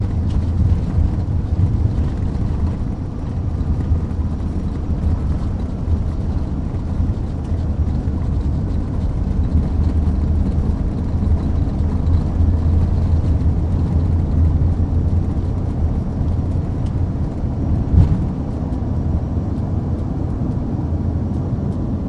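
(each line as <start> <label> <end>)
0.1 A constant mixed noise with an airflow sound indoors. 22.1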